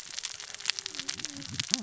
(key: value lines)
label: biophony, cascading saw
recorder: SoundTrap 600 or HydroMoth